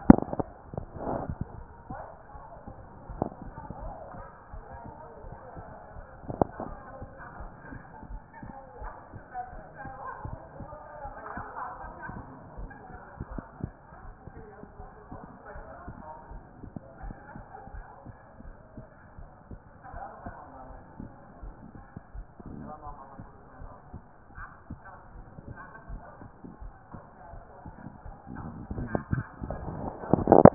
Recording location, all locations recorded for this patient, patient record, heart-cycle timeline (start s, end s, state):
pulmonary valve (PV)
aortic valve (AV)+pulmonary valve (PV)+tricuspid valve (TV)+mitral valve (MV)
#Age: nan
#Sex: Female
#Height: nan
#Weight: nan
#Pregnancy status: True
#Murmur: Absent
#Murmur locations: nan
#Most audible location: nan
#Systolic murmur timing: nan
#Systolic murmur shape: nan
#Systolic murmur grading: nan
#Systolic murmur pitch: nan
#Systolic murmur quality: nan
#Diastolic murmur timing: nan
#Diastolic murmur shape: nan
#Diastolic murmur grading: nan
#Diastolic murmur pitch: nan
#Diastolic murmur quality: nan
#Outcome: Normal
#Campaign: 2014 screening campaign
0.00	3.70	unannotated
3.70	3.82	diastole
3.82	3.94	S1
3.94	4.14	systole
4.14	4.26	S2
4.26	4.52	diastole
4.52	4.64	S1
4.64	4.84	systole
4.84	4.94	S2
4.94	5.24	diastole
5.24	5.36	S1
5.36	5.56	systole
5.56	5.66	S2
5.66	5.96	diastole
5.96	6.06	S1
6.06	6.26	systole
6.26	6.40	S2
6.40	6.66	diastole
6.66	6.78	S1
6.78	7.00	systole
7.00	7.08	S2
7.08	7.38	diastole
7.38	7.52	S1
7.52	7.70	systole
7.70	7.82	S2
7.82	8.10	diastole
8.10	8.22	S1
8.22	8.42	systole
8.42	8.52	S2
8.52	8.80	diastole
8.80	8.92	S1
8.92	9.12	systole
9.12	9.24	S2
9.24	9.54	diastole
9.54	9.64	S1
9.64	9.84	systole
9.84	9.92	S2
9.92	10.24	diastole
10.24	10.38	S1
10.38	10.58	systole
10.58	10.68	S2
10.68	11.04	diastole
11.04	11.16	S1
11.16	11.36	systole
11.36	11.46	S2
11.46	11.84	diastole
11.84	11.94	S1
11.94	12.12	systole
12.12	12.24	S2
12.24	12.58	diastole
12.58	12.70	S1
12.70	12.90	systole
12.90	12.98	S2
12.98	13.30	diastole
13.30	13.44	S1
13.44	13.62	systole
13.62	13.74	S2
13.74	14.04	diastole
14.04	14.16	S1
14.16	14.36	systole
14.36	14.46	S2
14.46	14.78	diastole
14.78	14.90	S1
14.90	15.10	systole
15.10	15.20	S2
15.20	15.56	diastole
15.56	15.66	S1
15.66	15.86	systole
15.86	15.98	S2
15.98	16.30	diastole
16.30	16.42	S1
16.42	16.62	systole
16.62	16.72	S2
16.72	17.02	diastole
17.02	17.16	S1
17.16	17.36	systole
17.36	17.44	S2
17.44	17.74	diastole
17.74	17.86	S1
17.86	18.06	systole
18.06	18.16	S2
18.16	18.44	diastole
18.44	18.56	S1
18.56	18.76	systole
18.76	18.86	S2
18.86	19.18	diastole
19.18	19.30	S1
19.30	19.50	systole
19.50	19.60	S2
19.60	19.94	diastole
19.94	20.04	S1
20.04	20.24	systole
20.24	20.36	S2
20.36	20.68	diastole
20.68	20.80	S1
20.80	21.00	systole
21.00	21.10	S2
21.10	21.42	diastole
21.42	21.54	S1
21.54	21.74	systole
21.74	21.84	S2
21.84	22.14	diastole
22.14	22.26	S1
22.26	22.46	systole
22.46	22.64	S2
22.64	22.86	diastole
22.86	22.98	S1
22.98	23.18	systole
23.18	23.28	S2
23.28	23.60	diastole
23.60	23.72	S1
23.72	23.92	systole
23.92	24.02	S2
24.02	24.38	diastole
24.38	24.48	S1
24.48	24.70	systole
24.70	24.80	S2
24.80	25.16	diastole
25.16	25.26	S1
25.26	25.46	systole
25.46	25.58	S2
25.58	25.90	diastole
25.90	26.02	S1
26.02	26.22	systole
26.22	26.30	S2
26.30	26.62	diastole
26.62	26.74	S1
26.74	26.92	systole
26.92	27.02	S2
27.02	27.32	diastole
27.32	27.44	S1
27.44	27.66	systole
27.66	27.74	S2
27.74	28.06	diastole
28.06	28.12	S1
28.12	30.54	unannotated